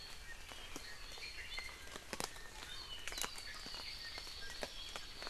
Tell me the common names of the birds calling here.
Iiwi, Hawaii Amakihi